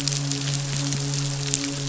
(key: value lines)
label: biophony, midshipman
recorder: SoundTrap 500